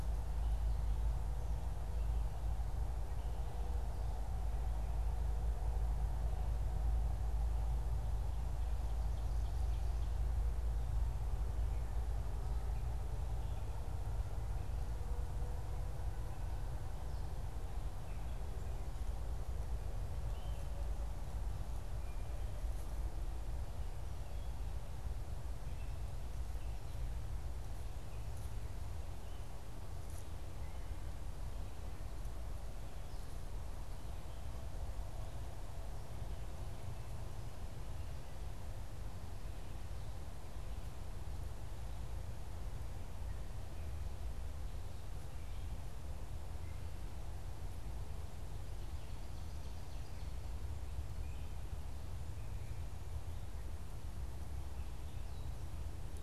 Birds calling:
Ovenbird (Seiurus aurocapilla)
unidentified bird

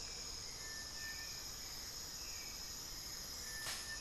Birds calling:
Plain-winged Antshrike (Thamnophilus schistaceus)
Amazonian Motmot (Momotus momota)
Hauxwell's Thrush (Turdus hauxwelli)

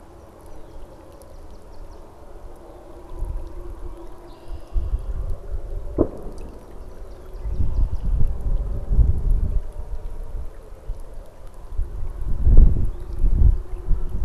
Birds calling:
Red-winged Blackbird (Agelaius phoeniceus)
Song Sparrow (Melospiza melodia)

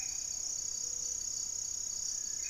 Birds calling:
Ruddy Pigeon (Patagioenas subvinacea)
Cinereous Tinamou (Crypturellus cinereus)
Black-faced Antthrush (Formicarius analis)
Gray-fronted Dove (Leptotila rufaxilla)

